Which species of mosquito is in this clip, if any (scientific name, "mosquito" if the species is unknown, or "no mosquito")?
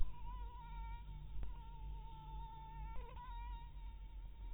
mosquito